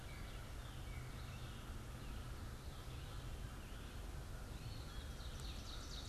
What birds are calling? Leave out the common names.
Corvus brachyrhynchos, Vireo olivaceus, Seiurus aurocapilla